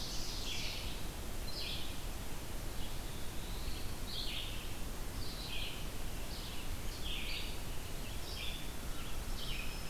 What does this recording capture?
Ovenbird, Red-eyed Vireo, Black-throated Blue Warbler